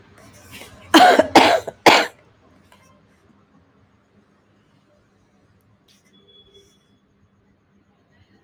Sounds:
Cough